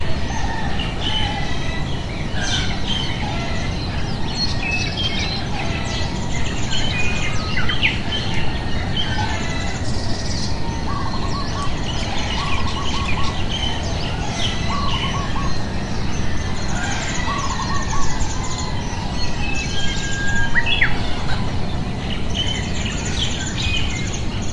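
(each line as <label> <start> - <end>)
Tropical birds call and chirp in a rhythmic, high-pitched pattern in a dense forest. 0.2 - 24.5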